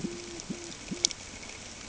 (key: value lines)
label: ambient
recorder: HydroMoth